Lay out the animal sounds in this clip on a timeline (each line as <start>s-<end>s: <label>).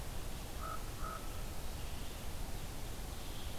0.0s-3.6s: Red-eyed Vireo (Vireo olivaceus)
0.2s-1.7s: Common Raven (Corvus corax)